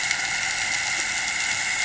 {"label": "anthrophony, boat engine", "recorder": "HydroMoth"}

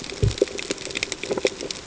{"label": "ambient", "recorder": "HydroMoth"}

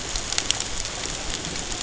{"label": "ambient", "recorder": "HydroMoth"}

